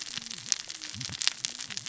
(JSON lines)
{"label": "biophony, cascading saw", "recorder": "SoundTrap 600 or HydroMoth"}